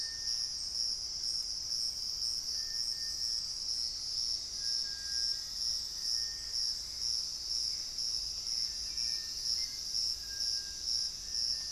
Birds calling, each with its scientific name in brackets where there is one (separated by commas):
Black-faced Antthrush (Formicarius analis), Gray Antbird (Cercomacra cinerascens), Hauxwell's Thrush (Turdus hauxwelli)